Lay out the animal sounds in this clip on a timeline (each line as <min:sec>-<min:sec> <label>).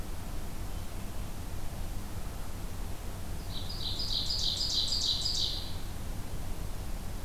0:03.5-0:05.9 Ovenbird (Seiurus aurocapilla)